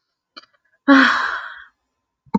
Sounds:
Sigh